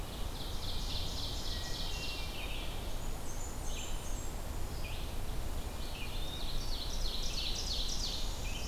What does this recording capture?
Ovenbird, Red-eyed Vireo, Hermit Thrush, Blackburnian Warbler, Northern Parula